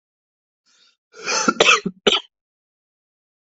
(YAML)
expert_labels:
- quality: ok
  cough_type: dry
  dyspnea: false
  wheezing: true
  stridor: false
  choking: false
  congestion: false
  nothing: false
  diagnosis: COVID-19
  severity: mild
age: 34
gender: male
respiratory_condition: false
fever_muscle_pain: false
status: symptomatic